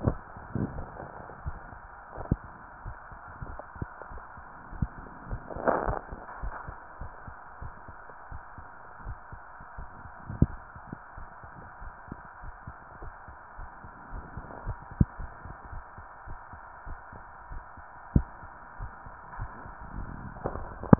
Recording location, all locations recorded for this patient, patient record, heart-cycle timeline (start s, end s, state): tricuspid valve (TV)
aortic valve (AV)+pulmonary valve (PV)+tricuspid valve (TV)+mitral valve (MV)
#Age: nan
#Sex: Female
#Height: nan
#Weight: nan
#Pregnancy status: True
#Murmur: Absent
#Murmur locations: nan
#Most audible location: nan
#Systolic murmur timing: nan
#Systolic murmur shape: nan
#Systolic murmur grading: nan
#Systolic murmur pitch: nan
#Systolic murmur quality: nan
#Diastolic murmur timing: nan
#Diastolic murmur shape: nan
#Diastolic murmur grading: nan
#Diastolic murmur pitch: nan
#Diastolic murmur quality: nan
#Outcome: Abnormal
#Campaign: 2015 screening campaign
0.00	6.40	unannotated
6.40	6.56	S1
6.56	6.66	systole
6.66	6.78	S2
6.78	7.00	diastole
7.00	7.12	S1
7.12	7.25	systole
7.25	7.36	S2
7.36	7.60	diastole
7.60	7.74	S1
7.74	7.88	systole
7.88	7.99	S2
7.99	8.32	diastole
8.32	8.42	S1
8.42	8.56	systole
8.56	8.67	S2
8.67	9.04	diastole
9.04	9.18	S1
9.18	9.31	systole
9.31	9.42	S2
9.42	9.78	diastole
9.78	9.88	S1
9.88	10.00	systole
10.00	10.10	S2
10.10	10.28	diastole
10.28	10.42	S1
10.42	10.48	systole
10.48	10.58	S2
10.58	10.75	diastole
10.75	10.82	S1
10.82	10.90	systole
10.90	10.98	S2
10.98	11.18	diastole
11.18	11.28	S1
11.28	11.41	systole
11.41	11.52	S2
11.52	11.82	diastole
11.82	11.92	S1
11.92	12.08	systole
12.08	12.18	S2
12.18	12.44	diastole
12.44	12.54	S1
12.54	12.64	systole
12.64	12.74	S2
12.74	13.00	diastole
13.00	13.14	S1
13.14	13.26	systole
13.26	13.36	S2
13.36	13.58	diastole
13.58	13.70	S1
13.70	13.82	systole
13.82	13.90	S2
13.90	14.12	diastole
14.12	14.26	S1
14.26	14.34	systole
14.34	14.46	S2
14.46	14.64	diastole
14.64	14.78	S1
14.78	14.89	systole
14.89	15.00	S2
15.00	15.17	diastole
15.17	15.34	S1
15.34	15.46	systole
15.46	15.56	S2
15.56	15.71	diastole
15.71	15.84	S1
15.84	15.95	systole
15.95	16.04	S2
16.04	16.28	diastole
16.28	16.38	S1
16.38	16.50	systole
16.50	16.62	S2
16.62	16.86	diastole
16.86	16.98	S1
16.98	17.10	systole
17.10	17.22	S2
17.22	17.48	diastole
17.48	17.62	S1
17.62	17.75	systole
17.75	17.84	S2
17.84	20.99	unannotated